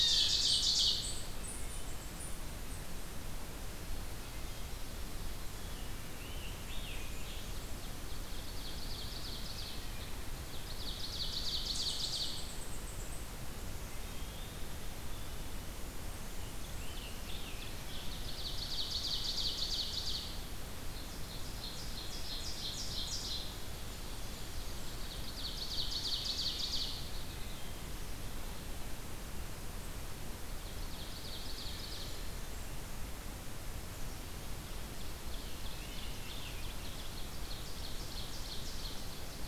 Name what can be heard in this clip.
Ovenbird, unknown mammal, Scarlet Tanager, Eastern Wood-Pewee